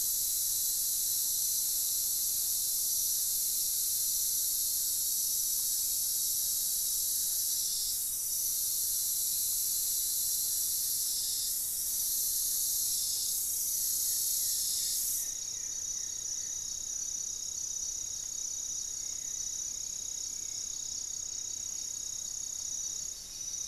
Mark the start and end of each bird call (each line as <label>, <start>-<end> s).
Black-faced Antthrush (Formicarius analis), 10.3-13.0 s
Goeldi's Antbird (Akletos goeldii), 13.4-17.0 s
Hauxwell's Thrush (Turdus hauxwelli), 14.4-20.8 s
Buff-breasted Wren (Cantorchilus leucotis), 21.0-22.2 s